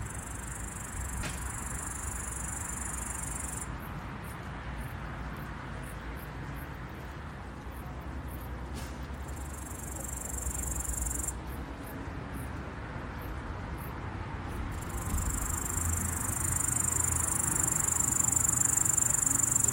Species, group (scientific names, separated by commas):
Tettigonia cantans, Orthoptera